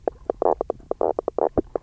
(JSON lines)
{"label": "biophony, knock croak", "recorder": "SoundTrap 300"}